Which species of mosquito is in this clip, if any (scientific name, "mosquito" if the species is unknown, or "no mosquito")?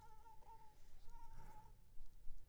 mosquito